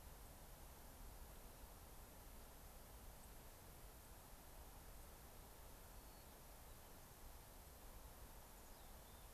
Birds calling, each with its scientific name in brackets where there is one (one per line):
White-crowned Sparrow (Zonotrichia leucophrys)
Mountain Chickadee (Poecile gambeli)